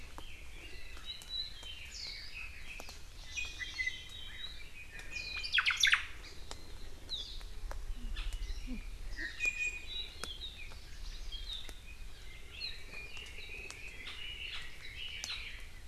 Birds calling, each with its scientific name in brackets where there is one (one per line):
Hawaii Amakihi (Chlorodrepanis virens)
Warbling White-eye (Zosterops japonicus)
Red-billed Leiothrix (Leiothrix lutea)
Omao (Myadestes obscurus)
Iiwi (Drepanis coccinea)